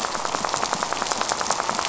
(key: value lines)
label: biophony, rattle
recorder: SoundTrap 500